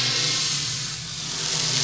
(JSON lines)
{"label": "anthrophony, boat engine", "recorder": "SoundTrap 500"}